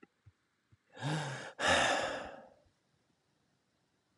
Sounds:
Sigh